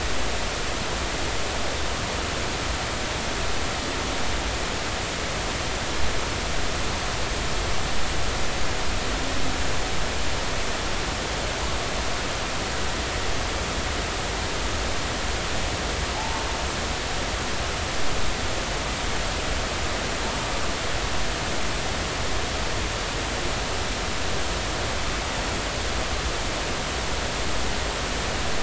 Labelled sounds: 16.1	16.4	humpback whale, 0.80 to 1.1 kHz

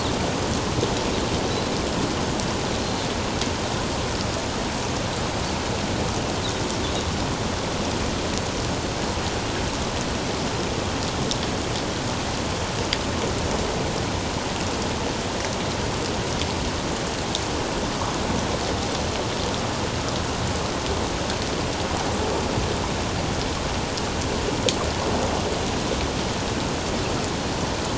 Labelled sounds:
2.8	3.1	Pacific white-sided dolphin, 4.0 to 4.3 kHz

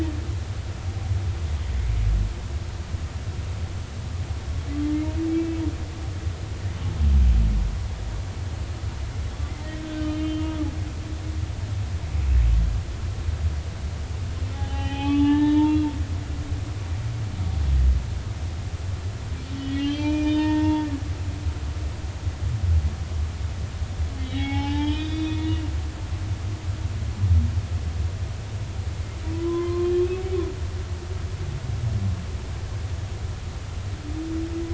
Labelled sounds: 5.3	5.6	humpback whale, 2.6 to 2.7 kHz
10.2	11.4	humpback whale, 2.8 to 3.2 kHz
14.5	15.9	humpback whale, 0.80 to 3.9 kHz
19.5	20.9	humpback whale, 0.86 to 4.9 kHz
24.2	25.6	humpback whale, 0.80 to 4.8 kHz
29.3	29.9	humpback whale, 0.96 to 1.2 kHz

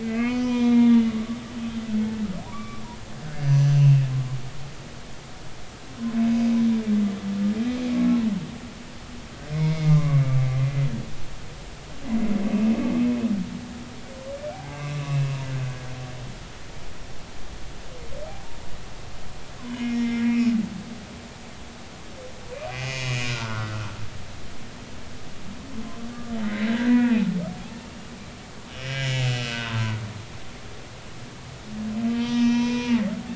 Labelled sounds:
0.0	1.1	humpback whale, 0.90 to 3.6 kHz
1.5	2.8	humpback whale, 1.1 to 2.5 kHz
3.3	4.0	humpback whale, 1.6 to 6.2 kHz
7.9	8.3	humpback whale, 0.90 to 1.2 kHz
9.5	10.2	humpback whale, 0.99 to 2.3 kHz
14.5	15.4	humpback whale, 0.80 to 2.8 kHz
19.6	20.5	humpback whale, 1.8 to 5.7 kHz
22.5	24.0	humpback whale, 1.2 to 6.7 kHz
26.4	28.0	humpback whale, 0.80 to 2.8 kHz
28.7	30.0	humpback whale, 0.90 to 7.2 kHz
32.1	33.0	humpback whale, 0.83 to 6.1 kHz

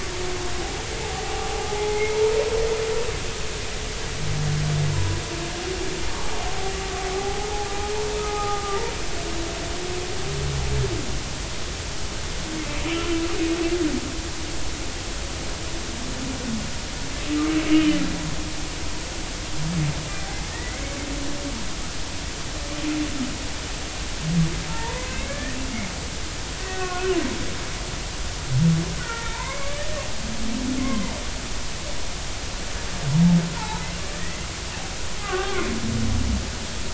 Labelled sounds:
1.0	2.1	humpback whale, 0.80 to 2.2 kHz
4.9	5.2	humpback whale, 0.93 to 1.0 kHz
7.1	7.7	humpback whale, 0.80 to 0.96 kHz
8.2	8.8	humpback whale, 0.80 to 1.4 kHz
20.5	20.8	humpback whale, 1.8 to 2.2 kHz
24.7	25.6	humpback whale, 0.86 to 2.3 kHz
26.6	27.2	humpback whale, 1.3 to 2.0 kHz
29.0	29.8	humpback whale, 0.86 to 2.3 kHz
31.8	32.1	humpback whale, 0.86 to 1.2 kHz
33.6	34.5	humpback whale, 0.80 to 4.1 kHz
35.2	35.7	humpback whale, 0.80 to 1.7 kHz

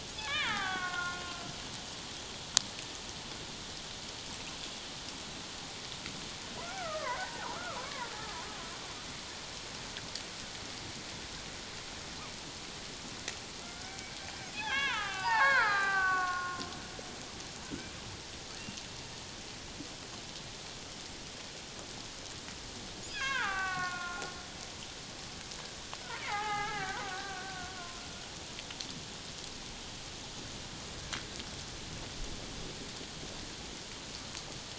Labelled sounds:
0.2	1.2	killer whale, Bigg's (transient), call T07, 0.78 to 3.8 kHz
6.6	8.1	killer whale, Bigg's (transient), 0.78 to 2.1 kHz
13.6	16.7	killer whale, Bigg's (transient), 0.78 to 6.2 kHz
23.1	24.3	killer whale, Bigg's (transient), 0.78 to 5.0 kHz
26.2	27.7	killer whale, Bigg's (transient), 0.78 to 3.1 kHz

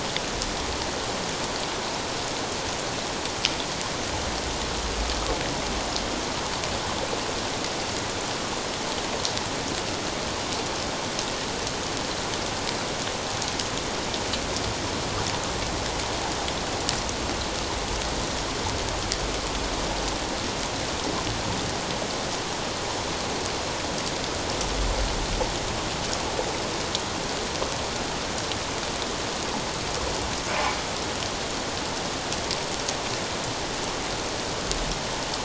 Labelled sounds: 30.5	30.8	humpback whale, 2.2 to 2.5 kHz

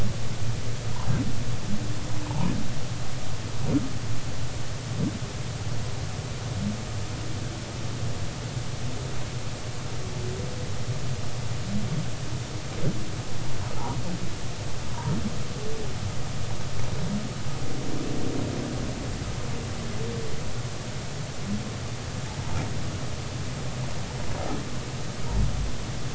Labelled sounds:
2.3	2.5	humpback whale, 0.80 to 1.1 kHz

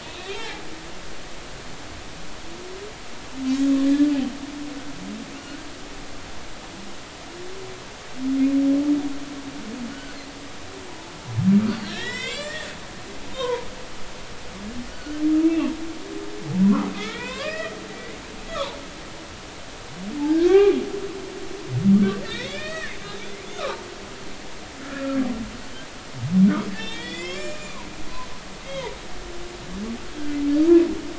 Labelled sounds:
0.0	0.6	humpback whale, 0.80 to 4.0 kHz
3.8	4.1	humpback whale, 1.7 to 1.8 kHz
5.4	5.7	humpback whale, 1.4 to 1.6 kHz
9.9	10.2	humpback whale, 1.4 to 1.6 kHz
11.7	12.7	humpback whale, 0.93 to 7.8 kHz
13.3	13.7	humpback whale, 0.90 to 1.1 kHz
14.9	15.7	humpback whale, 1.4 to 2.8 kHz
16.6	17.8	humpback whale, 0.93 to 3.9 kHz
19.5	20.8	humpback whale, 0.80 to 2.5 kHz
22.2	23.7	humpback whale, 1.2 to 5.8 kHz
24.8	25.2	humpback whale, 1.3 to 1.5 kHz
26.7	27.8	humpback whale, 1.7 to 7.4 kHz
28.6	28.9	humpback whale, 1.9 to 2.2 kHz

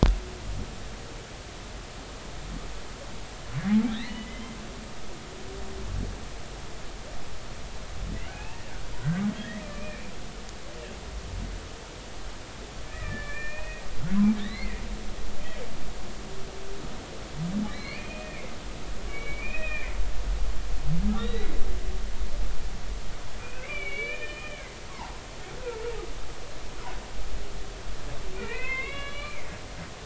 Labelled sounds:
3.9	4.6	humpback whale, 1.9 to 4.5 kHz
8.3	10.1	humpback whale, 0.80 to 3.5 kHz
12.9	13.8	humpback whale, 1.7 to 2.6 kHz
14.4	15.6	humpback whale, 1.7 to 4.5 kHz
17.7	18.5	humpback whale, 1.6 to 4.6 kHz
19.1	19.9	humpback whale, 1.7 to 3.8 kHz
21.2	21.6	humpback whale, 1.8 to 4.1 kHz
23.4	25.1	humpback whale, 0.80 to 3.1 kHz
28.3	29.4	humpback whale, 0.86 to 4.3 kHz

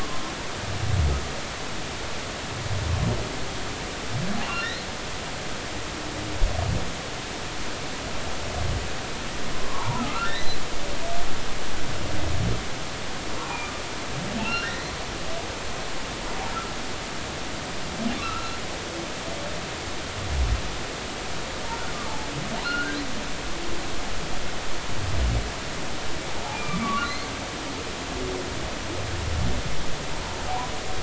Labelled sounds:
4.4	4.9	humpback whale, 2.7 to 4.3 kHz
9.6	10.6	humpback whale, 0.83 to 4.1 kHz
13.5	13.7	humpback whale, 2.3 to 2.5 kHz
14.4	14.9	humpback whale, 1.3 to 4.2 kHz
18.2	18.5	humpback whale, 1.2 to 1.4 kHz
22.6	23.0	humpback whale, 1.3 to 1.6 kHz
26.5	27.1	humpback whale, 1.1 to 2.5 kHz

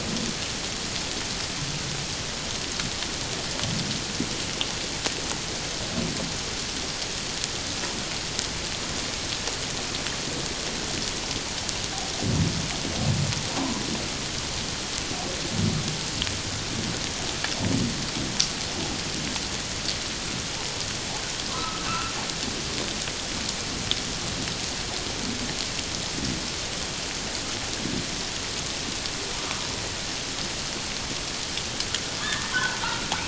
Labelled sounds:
21.5	22.1	humpback whale, 1.2 to 1.5 kHz
32.5	33.1	humpback whale, 1.3 to 1.6 kHz

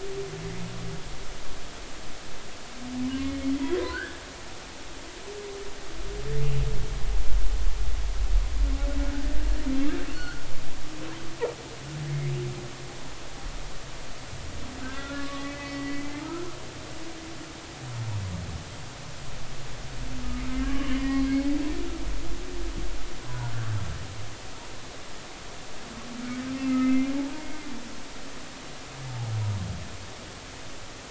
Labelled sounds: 3.1	4.2	humpback whale, 1.3 to 3.1 kHz
10.1	10.4	humpback whale, 1.3 to 3.0 kHz
12.1	12.3	humpback whale, 1.9 to 2.3 kHz
14.8	16.5	humpback whale, 1.1 to 2.1 kHz
20.6	21.3	humpback whale, 0.96 to 3.1 kHz
26.6	27.5	humpback whale, 0.80 to 2.7 kHz

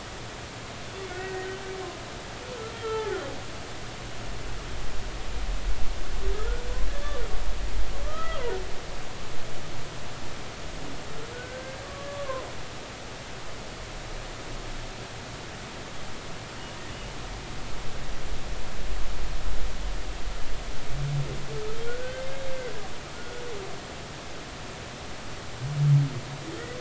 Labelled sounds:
1.1	1.5	humpback whale, 1.4 to 2.0 kHz
2.7	3.2	humpback whale, 0.80 to 3.3 kHz
6.3	6.6	humpback whale, 1.2 to 1.5 kHz
8.0	8.4	humpback whale, 1.1 to 3.3 kHz
11.3	12.5	humpback whale, 0.96 to 1.6 kHz
22.0	22.2	humpback whale, 1.5 to 1.6 kHz
23.1	23.4	humpback whale, 1.4 to 1.5 kHz

